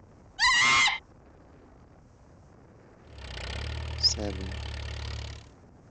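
First, at the start, someone screams. Then about 3 seconds in, a quiet engine can be heard, fading in and later fading out. Over it, a voice says "seven".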